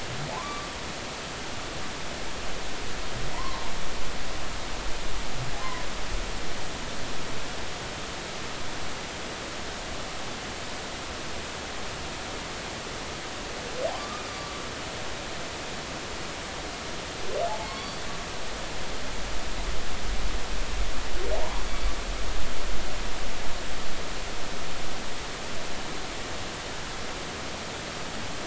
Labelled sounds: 0.3	0.7	humpback whale, 0.80 to 1.2 kHz
3.3	3.7	humpback whale, 0.86 to 1.2 kHz
14.0	14.6	humpback whale, 1.1 to 1.3 kHz
17.6	18.0	humpback whale, 1.0 to 4.6 kHz
21.3	21.6	humpback whale, 0.80 to 1.1 kHz

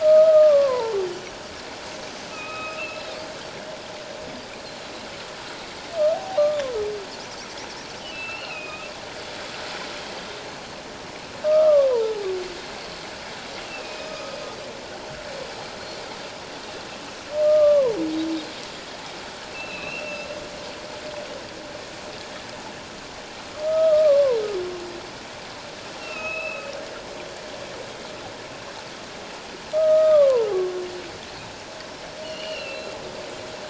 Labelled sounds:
0.0	1.0	humpback whale, 0.84 to 1.3 kHz
2.3	3.1	humpback whale, 1.2 to 2.9 kHz
6.1	6.5	humpback whale, 0.78 to 0.81 kHz
8.0	8.9	humpback whale, 2.4 to 3.2 kHz
11.4	12.3	humpback whale, 0.78 to 1.4 kHz
13.7	14.4	humpback whale, 1.1 to 2.8 kHz
17.4	18.0	humpback whale, 0.78 to 1.3 kHz
19.5	20.3	humpback whale, 2.3 to 4.2 kHz
23.6	24.4	humpback whale, 0.88 to 1.3 kHz
26.0	26.7	humpback whale, 1.2 to 2.8 kHz
29.7	30.5	humpback whale, 0.88 to 1.3 kHz
32.2	32.9	humpback whale, 2.6 to 4.5 kHz

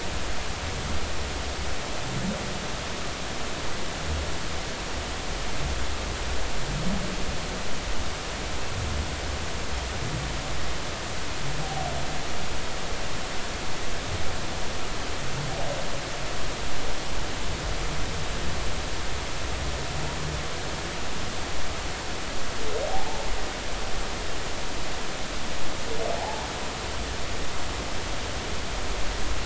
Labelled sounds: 22.9	23.2	humpback whale, 0.80 to 0.93 kHz
26.2	26.5	humpback whale, 0.80 to 1.0 kHz

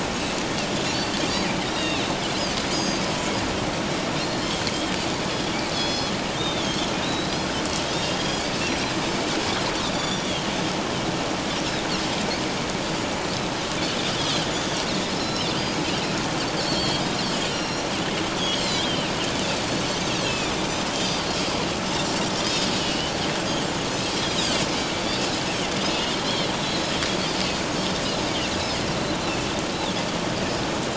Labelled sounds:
0.9	2.1	Pacific white-sided dolphin, 2.4 to 4.7 kHz
2.7	3.0	Pacific white-sided dolphin, 4.7 to 6.7 kHz
4.2	4.6	Pacific white-sided dolphin, 3.0 to 4.4 kHz
5.3	7.5	Pacific white-sided dolphin, 3.1 to 6.2 kHz
8.6	8.9	Pacific white-sided dolphin, 5.5 to 5.8 kHz
9.9	10.5	Pacific white-sided dolphin, 3.1 to 7.2 kHz
14.5	15.8	Pacific white-sided dolphin, 3.3 to 6.5 kHz
16.6	17.0	Pacific white-sided dolphin, 3.2 to 4.8 kHz
17.5	17.8	Pacific white-sided dolphin, 2.7 to 5.7 kHz
18.4	19.1	Pacific white-sided dolphin, 2.9 to 4.4 kHz
19.6	21.3	Pacific white-sided dolphin, 2.3 to 4.9 kHz
22.2	23.1	Pacific white-sided dolphin, 2.7 to 5.2 kHz
26.2	26.9	Pacific white-sided dolphin, 3.0 to 6.8 kHz
27.8	28.0	Pacific white-sided dolphin, 5.3 to 5.5 kHz
29.7	30.0	Pacific white-sided dolphin, 3.3 to 4.1 kHz

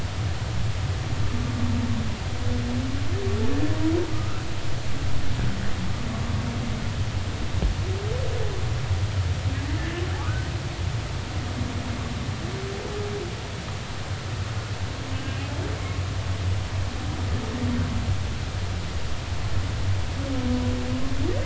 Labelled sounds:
4.1	4.4	humpback whale, 1.2 to 1.5 kHz
9.8	10.5	humpback whale, 1.1 to 1.8 kHz
15.1	15.4	humpback whale, 2.8 to 3.0 kHz

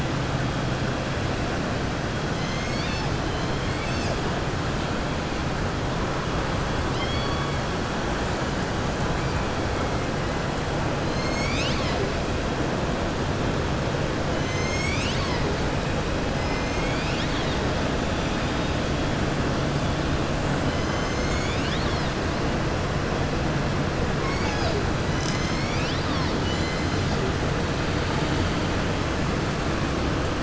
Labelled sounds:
6.8	7.6	killer whale, southern resident, 1.2 to 5.5 kHz
16.3	17.6	killer whale, southern resident, 2.0 to 6.4 kHz

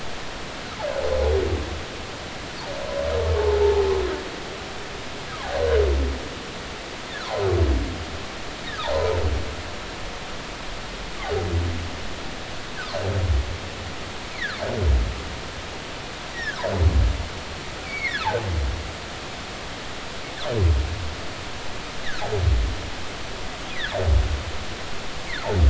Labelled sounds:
3.4	3.9	humpback whale, 0.80 to 0.96 kHz
14.3	14.6	humpback whale, 1.2 to 2.4 kHz
16.3	16.6	humpback whale, 1.4 to 2.0 kHz
17.9	18.2	humpback whale, 1.4 to 4.6 kHz

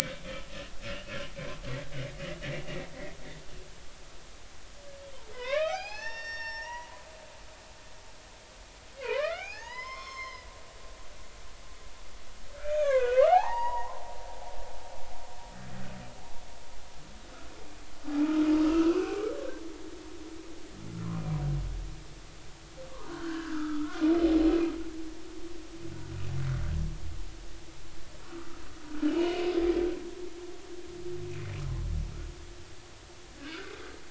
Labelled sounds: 5.3	7.0	humpback whale, 0.80 to 6.4 kHz
9.0	11.5	humpback whale, 0.80 to 6.5 kHz
12.6	14.1	humpback whale, 0.80 to 4.9 kHz
18.6	19.3	humpback whale, 1.2 to 2.8 kHz
21.1	21.4	humpback whale, 2.3 to 2.5 kHz
23.1	24.0	humpback whale, 1.2 to 3.2 kHz
29.1	29.5	humpback whale, 2.8 to 3.1 kHz
33.4	33.7	humpback whale, 1.3 to 1.7 kHz

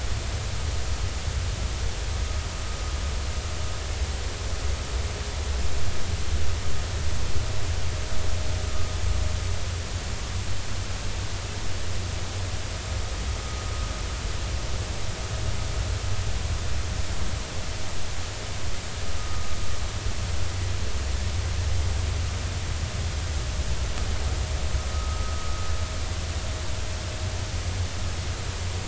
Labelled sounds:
19.2	19.5	vessel noise, 1.2 to 1.3 kHz
24.9	25.3	vessel noise, 1.2 to 1.3 kHz

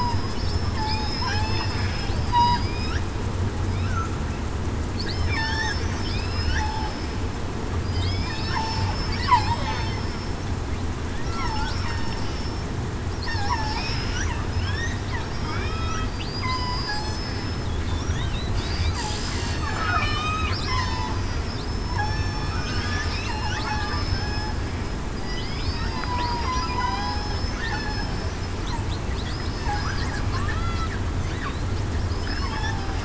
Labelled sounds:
0.3	1.7	killer whale, southern resident, 0.75 to 5.4 kHz
2.1	2.7	killer whale, southern resident, 4.6 to 4.9 kHz
5.1	7.1	killer whale, southern resident, 0.84 to 5.5 kHz
7.9	8.9	killer whale, southern resident, 0.84 to 3.8 kHz
9.2	9.6	killer whale, southern resident, 0.77 to 1.2 kHz
11.3	11.7	killer whale, southern resident, 0.82 to 1.1 kHz
12.2	12.6	killer whale, southern resident, 5.3 to 5.4 kHz
13.3	14.0	killer whale, southern resident, 5.2 to 5.5 kHz
14.5	14.8	killer whale, southern resident, 5.1 to 5.6 kHz
15.2	16.1	killer whale, southern resident, 3.1 to 5.6 kHz
16.4	16.8	killer whale, southern resident, 0.96 to 3.1 kHz
18.7	21.0	killer whale, southern resident, 0.89 to 5.4 kHz
21.7	22.8	killer whale, southern resident, 0.77 to 5.4 kHz
23.1	23.5	killer whale, southern resident, 3.6 to 4.2 kHz
23.8	24.5	killer whale, southern resident, 1.5 to 5.2 kHz
25.1	26.5	killer whale, southern resident, 0.89 to 5.4 kHz
26.8	27.2	killer whale, southern resident, 0.75 to 0.87 kHz
27.6	27.9	killer whale, southern resident, 1.7 to 1.9 kHz
30.5	30.9	killer whale, southern resident, 1.2 to 1.4 kHz
32.1	32.7	killer whale, southern resident, 5.1 to 5.4 kHz

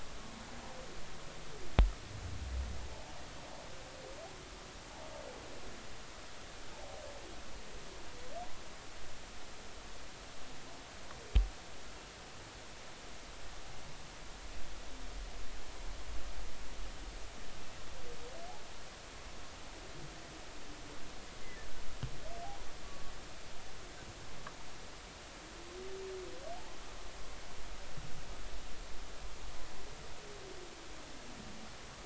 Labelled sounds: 21.4	21.7	humpback whale, 1.6 to 2.1 kHz
22.8	23.1	humpback whale, 1.1 to 1.2 kHz

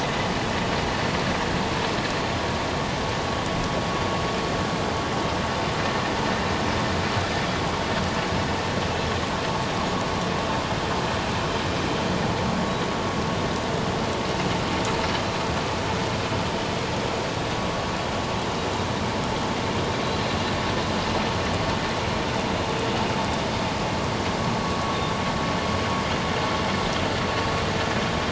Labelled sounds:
20.0	20.3	Pacific white-sided dolphin, 3.9 to 4.3 kHz

